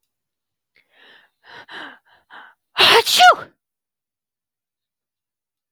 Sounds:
Sneeze